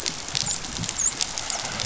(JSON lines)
{"label": "biophony, dolphin", "recorder": "SoundTrap 500"}